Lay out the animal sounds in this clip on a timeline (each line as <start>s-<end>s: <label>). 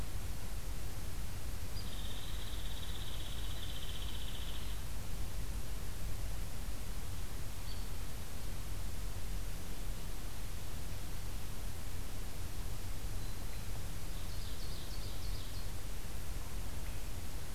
1.6s-4.8s: Hairy Woodpecker (Dryobates villosus)
7.6s-7.9s: Hairy Woodpecker (Dryobates villosus)
13.1s-13.7s: Black-throated Green Warbler (Setophaga virens)
14.1s-15.6s: Ovenbird (Seiurus aurocapilla)
16.7s-17.1s: Swainson's Thrush (Catharus ustulatus)